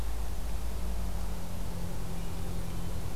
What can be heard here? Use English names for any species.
Hermit Thrush